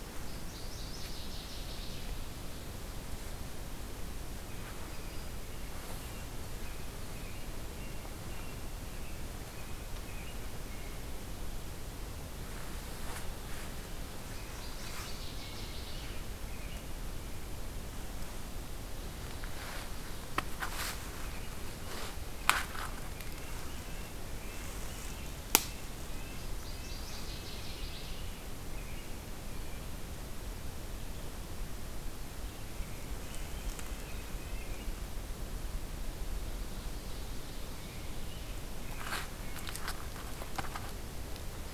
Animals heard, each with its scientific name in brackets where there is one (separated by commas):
Black-throated Green Warbler (Setophaga virens), American Robin (Turdus migratorius), Ovenbird (Seiurus aurocapilla), Red-breasted Nuthatch (Sitta canadensis), Northern Waterthrush (Parkesia noveboracensis)